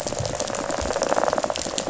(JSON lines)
{"label": "biophony, rattle", "recorder": "SoundTrap 500"}